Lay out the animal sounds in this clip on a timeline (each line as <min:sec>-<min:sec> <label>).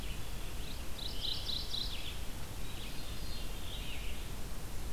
0:00.0-0:04.9 Red-eyed Vireo (Vireo olivaceus)
0:00.5-0:02.3 Mourning Warbler (Geothlypis philadelphia)
0:02.7-0:04.2 Veery (Catharus fuscescens)